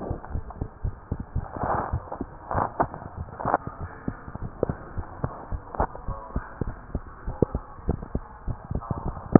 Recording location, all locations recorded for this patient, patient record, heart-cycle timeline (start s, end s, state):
tricuspid valve (TV)
aortic valve (AV)+pulmonary valve (PV)+tricuspid valve (TV)+mitral valve (MV)
#Age: Child
#Sex: Male
#Height: 121.0 cm
#Weight: 24.9 kg
#Pregnancy status: False
#Murmur: Absent
#Murmur locations: nan
#Most audible location: nan
#Systolic murmur timing: nan
#Systolic murmur shape: nan
#Systolic murmur grading: nan
#Systolic murmur pitch: nan
#Systolic murmur quality: nan
#Diastolic murmur timing: nan
#Diastolic murmur shape: nan
#Diastolic murmur grading: nan
#Diastolic murmur pitch: nan
#Diastolic murmur quality: nan
#Outcome: Normal
#Campaign: 2015 screening campaign
0.00	4.91	unannotated
4.91	5.06	S1
5.06	5.22	systole
5.22	5.32	S2
5.32	5.49	diastole
5.49	5.62	S1
5.62	5.78	systole
5.78	5.90	S2
5.90	6.06	diastole
6.06	6.18	S1
6.18	6.32	systole
6.32	6.44	S2
6.44	6.62	diastole
6.62	6.76	S1
6.76	6.90	systole
6.90	7.04	S2
7.04	7.24	diastole
7.24	7.40	S1
7.40	7.52	systole
7.52	7.66	S2
7.66	7.86	diastole
7.86	8.00	S1
8.00	8.10	systole
8.10	8.24	S2
8.24	8.46	diastole
8.46	8.58	S1
8.58	8.70	systole
8.70	8.84	S2
8.84	9.03	diastole
9.03	9.14	S1
9.14	9.39	unannotated